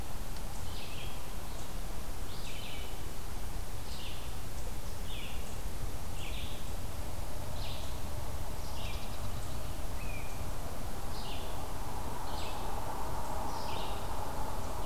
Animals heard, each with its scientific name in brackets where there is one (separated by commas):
Red-eyed Vireo (Vireo olivaceus), unidentified call, unknown mammal